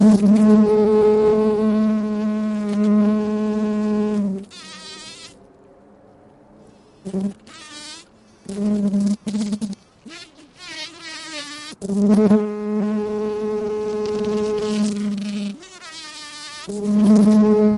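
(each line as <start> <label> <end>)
0.0 A bee buzzes loudly and repeatedly outdoors. 4.5
4.5 A fly is buzzing consistently. 5.4
7.0 A bee buzzes briefly outdoors. 7.4
7.5 A fly is buzzing consistently. 8.1
8.4 A bee buzzes loudly and repeatedly outdoors. 9.8
9.9 A fly buzzes repeatedly outdoors. 11.9
11.8 A bee buzzes loudly and repeatedly outdoors. 15.6
15.6 A fly buzzes repeatedly outdoors. 16.9
16.8 A bee buzzes loudly and repeatedly outdoors. 17.8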